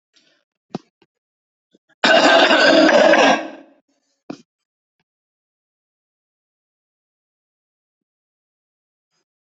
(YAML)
expert_labels:
- quality: poor
  cough_type: wet
  dyspnea: false
  wheezing: false
  stridor: false
  choking: false
  congestion: false
  nothing: true
  diagnosis: lower respiratory tract infection
  severity: unknown
age: 31
gender: male
respiratory_condition: false
fever_muscle_pain: false
status: symptomatic